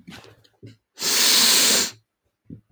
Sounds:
Sniff